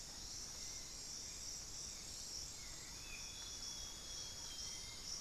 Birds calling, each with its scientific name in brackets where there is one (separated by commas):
White-necked Thrush (Turdus albicollis), Thrush-like Wren (Campylorhynchus turdinus), Amazonian Grosbeak (Cyanoloxia rothschildii)